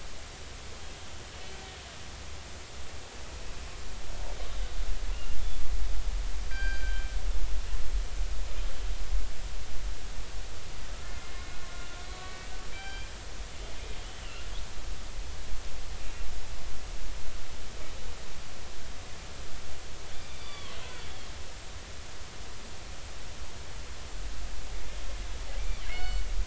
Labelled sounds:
1.3	1.6	killer whale, northern resident, A clan, 2.8 to 3.1 kHz
5.1	5.4	killer whale, northern resident, A clan, 2.7 to 2.9 kHz
6.5	7.1	killer whale, northern resident, G clan, call N24ii, 1.5 to 4.8 kHz
11.0	13.1	killer whale, northern resident, 1.1 to 4.8 kHz
14.2	14.5	killer whale, northern resident, A clan, call N07, 2.7 to 3.0 kHz
16.0	16.3	killer whale, northern resident, A clan, call N08, 2.6 to 2.8 kHz
20.1	20.7	killer whale, northern resident, A clan, AB subclan, call N20, 1.0 to 4.7 kHz
25.9	26.2	killer whale, northern resident, G clan, call N24ii, 2.0 to 7.5 kHz

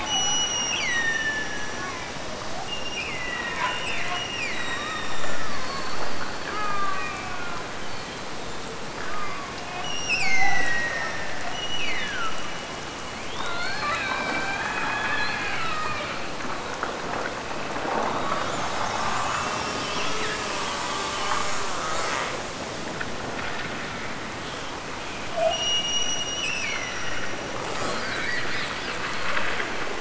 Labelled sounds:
0.0	2.0	killer whale, Bigg's (transient), Gulf of Alaska transient, 1.6 to 8.0 kHz
2.7	5.5	killer whale, Bigg's (transient), Gulf of Alaska transient, 1.6 to 5.9 kHz
6.5	7.6	killer whale, Bigg's (transient), Gulf of Alaska transient, 0.55 to 3.1 kHz
8.9	12.8	killer whale, Bigg's (transient), Gulf of Alaska transient, 0.62 to 8.0 kHz
13.2	16.3	killer whale, Bigg's (transient), Gulf of Alaska transient, 0.44 to 4.7 kHz
25.5	27.4	killer whale, Bigg's (transient), Gulf of Alaska transient, 1.7 to 8.0 kHz

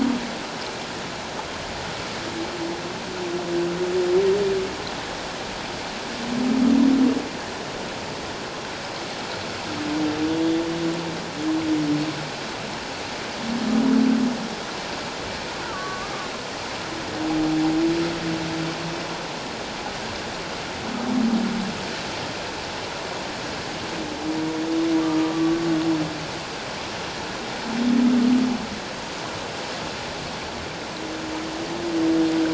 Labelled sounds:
10.3	10.6	humpback whale, 3.3 to 3.5 kHz
15.6	16.3	humpback whale, 1.1 to 1.6 kHz
25.0	25.5	humpback whale, 1.1 to 1.2 kHz

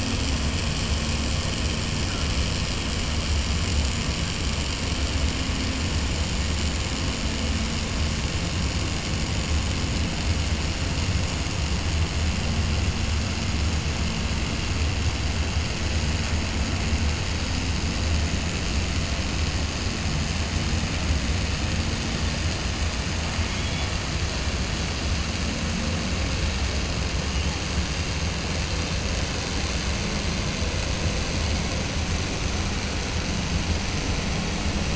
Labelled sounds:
23.4	23.9	killer whale, 2.2 to 3.5 kHz

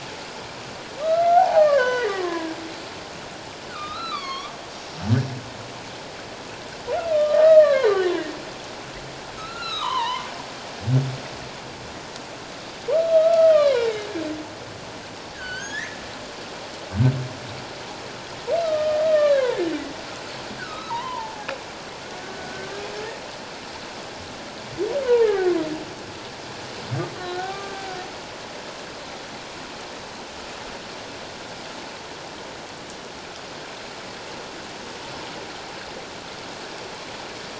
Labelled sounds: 1.0	2.5	humpback whale, 0.78 to 6.1 kHz
3.7	4.5	humpback whale, 1.0 to 5.7 kHz
7.1	7.9	humpback whale, 0.91 to 2.6 kHz
9.4	10.3	humpback whale, 0.81 to 4.2 kHz
12.9	14.1	humpback whale, 1.1 to 4.0 kHz
15.4	16.0	humpback whale, 1.4 to 4.8 kHz
18.6	19.7	humpback whale, 1.1 to 3.6 kHz
20.6	21.5	humpback whale, 0.78 to 4.2 kHz
22.2	22.7	humpback whale, 1.4 to 1.6 kHz
25.2	25.5	humpback whale, 1.4 to 1.9 kHz
27.2	27.9	humpback whale, 1.1 to 1.9 kHz

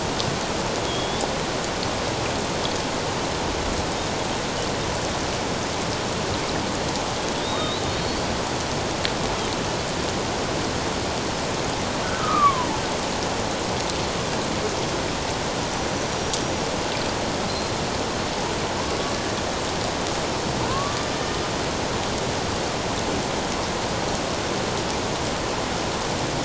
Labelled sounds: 0.9	1.3	killer whale, Bigg's (transient), 3.2 to 3.7 kHz
7.4	8.3	killer whale, Bigg's (transient), 3.3 to 4.7 kHz
12.0	12.7	killer whale, Bigg's (transient), 0.91 to 1.6 kHz
15.9	16.3	killer whale, Bigg's (transient), 5.6 to 6.1 kHz
20.7	21.0	killer whale, Bigg's (transient), 0.97 to 1.2 kHz

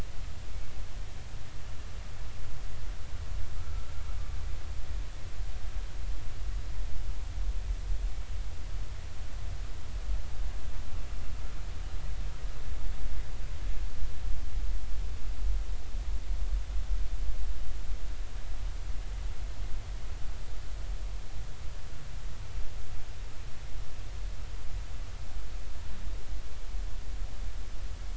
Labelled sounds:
3.5	3.9	humpback whale, 1.2 to 1.4 kHz

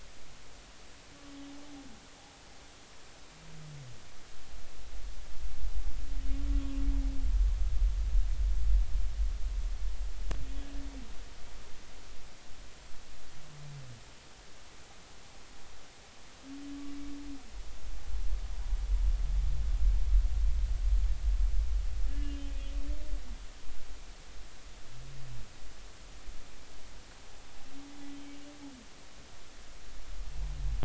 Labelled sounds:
22.1	22.5	humpback whale, 1.7 to 3.2 kHz

